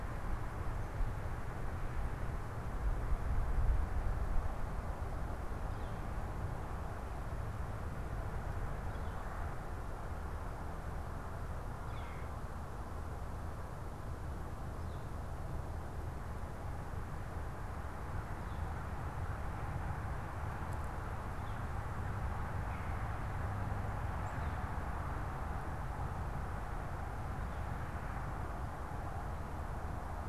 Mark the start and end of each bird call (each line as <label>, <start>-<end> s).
Red-bellied Woodpecker (Melanerpes carolinus), 11.8-12.4 s